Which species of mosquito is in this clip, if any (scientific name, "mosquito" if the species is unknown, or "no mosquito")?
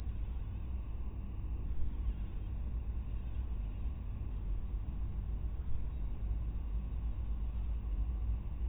mosquito